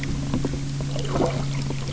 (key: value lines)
label: anthrophony, boat engine
recorder: SoundTrap 300